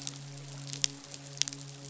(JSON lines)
{"label": "biophony, midshipman", "recorder": "SoundTrap 500"}